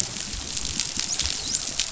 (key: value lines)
label: biophony, dolphin
recorder: SoundTrap 500